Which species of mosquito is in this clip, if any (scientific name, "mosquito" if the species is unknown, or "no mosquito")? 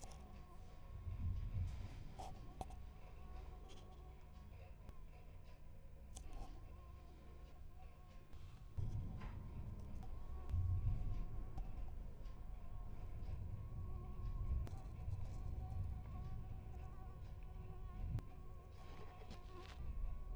Anopheles gambiae